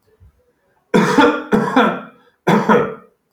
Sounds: Cough